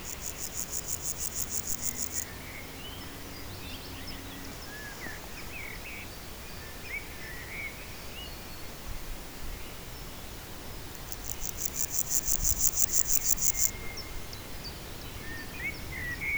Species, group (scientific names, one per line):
Pseudochorthippus parallelus
Orthoptera